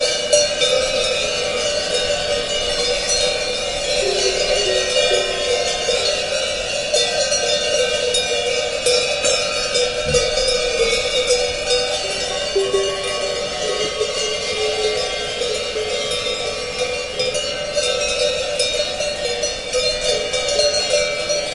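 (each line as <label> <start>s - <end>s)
A herd of cows with many cowbells ringing. 0.0s - 21.5s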